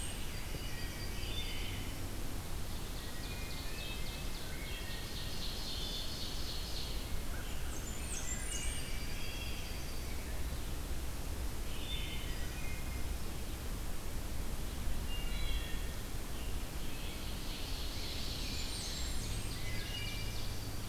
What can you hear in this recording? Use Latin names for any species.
Hylocichla mustelina, Piranga olivacea, Setophaga coronata, Seiurus aurocapilla, Corvus brachyrhynchos, Setophaga fusca, Pheucticus ludovicianus